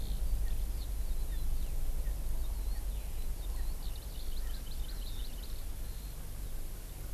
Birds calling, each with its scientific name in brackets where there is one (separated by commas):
Erckel's Francolin (Pternistis erckelii), Hawaii Amakihi (Chlorodrepanis virens), Eurasian Skylark (Alauda arvensis)